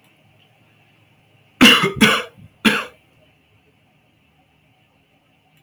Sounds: Cough